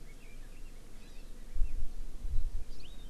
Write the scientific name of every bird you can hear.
Leiothrix lutea, Chlorodrepanis virens